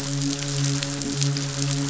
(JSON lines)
{"label": "biophony, midshipman", "recorder": "SoundTrap 500"}